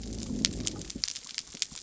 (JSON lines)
{"label": "biophony", "recorder": "SoundTrap 300"}